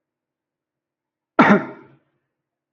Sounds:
Cough